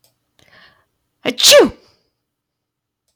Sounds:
Sneeze